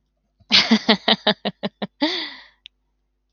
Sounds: Laughter